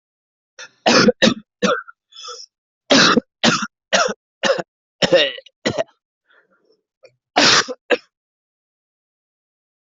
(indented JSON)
{
  "expert_labels": [
    {
      "quality": "good",
      "cough_type": "wet",
      "dyspnea": false,
      "wheezing": false,
      "stridor": false,
      "choking": false,
      "congestion": false,
      "nothing": true,
      "diagnosis": "lower respiratory tract infection",
      "severity": "mild"
    }
  ]
}